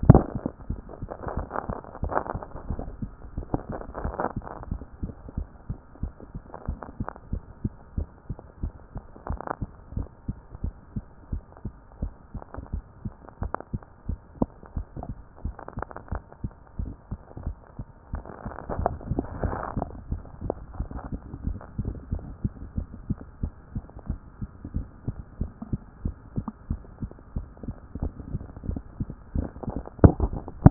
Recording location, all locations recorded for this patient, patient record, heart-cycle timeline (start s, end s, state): mitral valve (MV)
aortic valve (AV)+pulmonary valve (PV)+tricuspid valve (TV)+mitral valve (MV)
#Age: nan
#Sex: Female
#Height: nan
#Weight: nan
#Pregnancy status: True
#Murmur: Absent
#Murmur locations: nan
#Most audible location: nan
#Systolic murmur timing: nan
#Systolic murmur shape: nan
#Systolic murmur grading: nan
#Systolic murmur pitch: nan
#Systolic murmur quality: nan
#Diastolic murmur timing: nan
#Diastolic murmur shape: nan
#Diastolic murmur grading: nan
#Diastolic murmur pitch: nan
#Diastolic murmur quality: nan
#Outcome: Abnormal
#Campaign: 2014 screening campaign
0.00	0.66	unannotated
0.66	0.80	S1
0.80	1.00	systole
1.00	1.10	S2
1.10	1.34	diastole
1.34	1.48	S1
1.48	1.68	systole
1.68	1.78	S2
1.78	2.02	diastole
2.02	2.14	S1
2.14	2.32	systole
2.32	2.42	S2
2.42	2.70	diastole
2.70	2.82	S1
2.82	3.00	systole
3.00	3.12	S2
3.12	3.36	diastole
3.36	3.46	S1
3.46	3.68	systole
3.68	3.78	S2
3.78	4.02	diastole
4.02	4.14	S1
4.14	4.34	systole
4.34	4.42	S2
4.42	4.70	diastole
4.70	4.82	S1
4.82	5.02	systole
5.02	5.12	S2
5.12	5.36	diastole
5.36	5.48	S1
5.48	5.68	systole
5.68	5.78	S2
5.78	6.02	diastole
6.02	6.12	S1
6.12	6.34	systole
6.34	6.42	S2
6.42	6.68	diastole
6.68	6.78	S1
6.78	6.98	systole
6.98	7.08	S2
7.08	7.32	diastole
7.32	7.42	S1
7.42	7.62	systole
7.62	7.72	S2
7.72	7.96	diastole
7.96	8.08	S1
8.08	8.28	systole
8.28	8.38	S2
8.38	8.62	diastole
8.62	8.74	S1
8.74	8.94	systole
8.94	9.02	S2
9.02	9.28	diastole
9.28	9.40	S1
9.40	9.60	systole
9.60	9.68	S2
9.68	9.96	diastole
9.96	10.08	S1
10.08	10.26	systole
10.26	10.36	S2
10.36	10.62	diastole
10.62	10.74	S1
10.74	10.94	systole
10.94	11.04	S2
11.04	11.32	diastole
11.32	11.42	S1
11.42	11.64	systole
11.64	11.74	S2
11.74	12.02	diastole
12.02	12.12	S1
12.12	12.34	systole
12.34	12.42	S2
12.42	12.72	diastole
12.72	12.84	S1
12.84	13.04	systole
13.04	13.12	S2
13.12	13.40	diastole
13.40	13.52	S1
13.52	13.72	systole
13.72	13.82	S2
13.82	14.08	diastole
14.08	14.20	S1
14.20	14.40	systole
14.40	14.50	S2
14.50	14.76	diastole
14.76	14.86	S1
14.86	15.06	systole
15.06	15.16	S2
15.16	15.44	diastole
15.44	15.56	S1
15.56	15.76	systole
15.76	15.84	S2
15.84	16.10	diastole
16.10	16.22	S1
16.22	16.42	systole
16.42	16.52	S2
16.52	16.80	diastole
16.80	16.92	S1
16.92	17.10	systole
17.10	17.20	S2
17.20	17.44	diastole
17.44	17.56	S1
17.56	17.76	systole
17.76	17.86	S2
17.86	18.12	diastole
18.12	18.24	S1
18.24	18.44	systole
18.44	18.52	S2
18.52	18.76	diastole
18.76	18.92	S1
18.92	19.08	systole
19.08	19.24	S2
19.24	19.42	diastole
19.42	19.56	S1
19.56	19.74	systole
19.74	19.86	S2
19.86	20.10	diastole
20.10	20.22	S1
20.22	20.42	systole
20.42	20.54	S2
20.54	20.78	diastole
20.78	20.88	S1
20.88	21.10	systole
21.10	21.20	S2
21.20	21.44	diastole
21.44	21.58	S1
21.58	21.78	systole
21.78	21.92	S2
21.92	22.12	diastole
22.12	22.24	S1
22.24	22.42	systole
22.42	22.52	S2
22.52	22.76	diastole
22.76	22.88	S1
22.88	23.08	systole
23.08	23.18	S2
23.18	23.42	diastole
23.42	23.52	S1
23.52	23.74	systole
23.74	23.84	S2
23.84	24.08	diastole
24.08	24.20	S1
24.20	24.40	systole
24.40	24.48	S2
24.48	24.74	diastole
24.74	24.86	S1
24.86	25.06	systole
25.06	25.16	S2
25.16	25.40	diastole
25.40	25.52	S1
25.52	25.70	systole
25.70	25.80	S2
25.80	26.04	diastole
26.04	26.16	S1
26.16	26.36	systole
26.36	26.46	S2
26.46	26.70	diastole
26.70	26.82	S1
26.82	27.00	systole
27.00	27.12	S2
27.12	27.36	diastole
27.36	27.46	S1
27.46	27.64	systole
27.64	27.74	S2
27.74	28.00	diastole
28.00	28.12	S1
28.12	28.32	systole
28.32	28.42	S2
28.42	28.68	diastole
28.68	28.80	S1
28.80	28.98	systole
28.98	29.08	S2
29.08	29.34	diastole
29.34	29.48	S1
29.48	29.66	systole
29.66	29.76	S2
29.76	29.94	diastole
29.94	30.70	unannotated